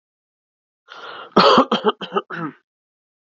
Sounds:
Cough